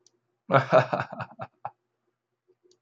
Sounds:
Laughter